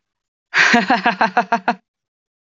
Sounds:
Laughter